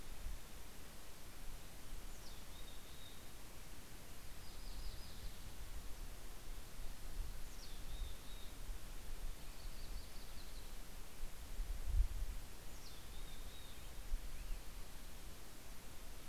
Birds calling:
Yellow-rumped Warbler (Setophaga coronata), Mountain Chickadee (Poecile gambeli)

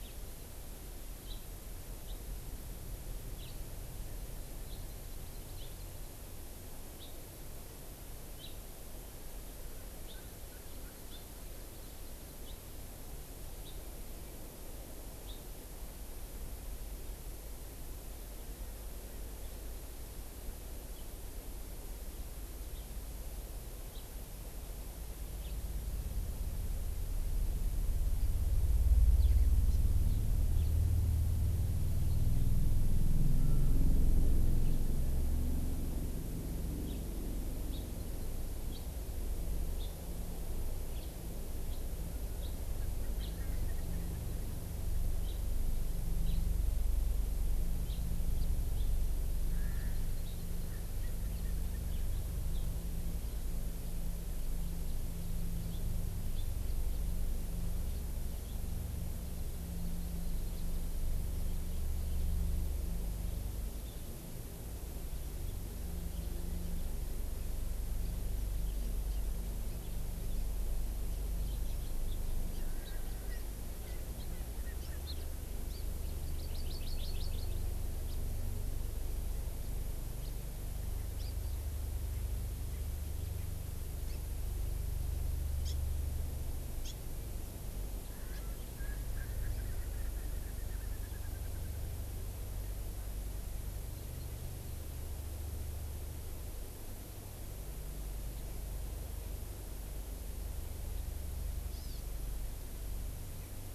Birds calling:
Hawaii Amakihi (Chlorodrepanis virens), House Finch (Haemorhous mexicanus), Erckel's Francolin (Pternistis erckelii)

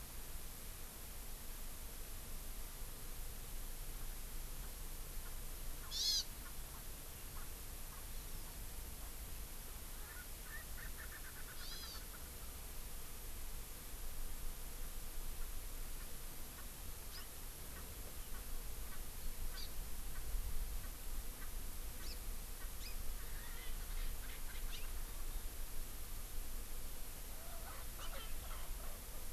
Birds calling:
Hawaii Amakihi (Chlorodrepanis virens), House Finch (Haemorhous mexicanus), Erckel's Francolin (Pternistis erckelii)

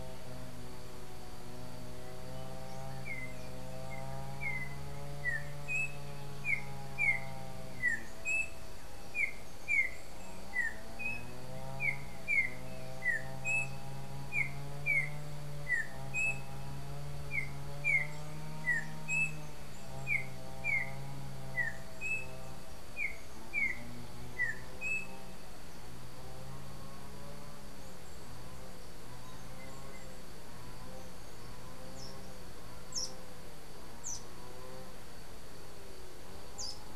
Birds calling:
Yellow-backed Oriole (Icterus chrysater), unidentified bird

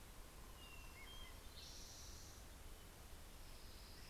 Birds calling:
Western Tanager (Piranga ludoviciana), Hermit Thrush (Catharus guttatus)

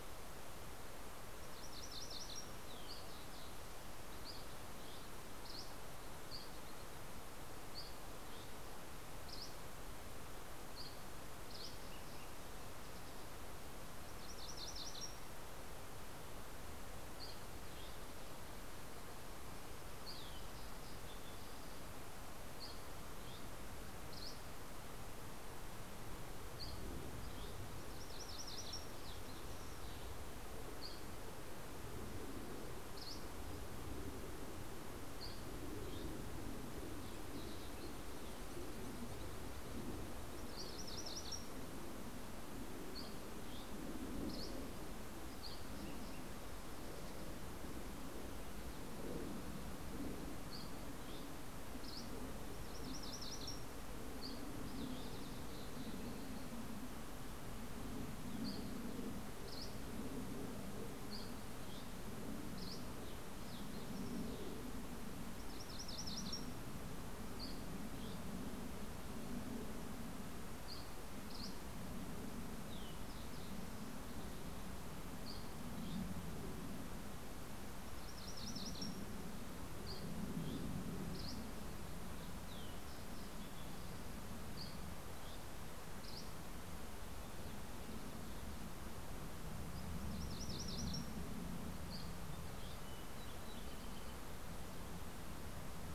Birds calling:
Fox Sparrow (Passerella iliaca), Dusky Flycatcher (Empidonax oberholseri), MacGillivray's Warbler (Geothlypis tolmiei), Green-tailed Towhee (Pipilo chlorurus)

